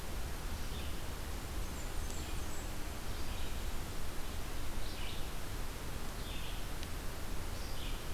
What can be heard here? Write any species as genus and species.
Vireo olivaceus, Setophaga fusca